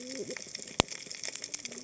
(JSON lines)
{"label": "biophony, cascading saw", "recorder": "HydroMoth"}